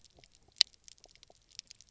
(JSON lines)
{"label": "biophony, pulse", "recorder": "SoundTrap 300"}